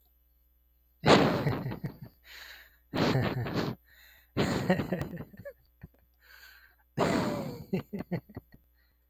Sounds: Laughter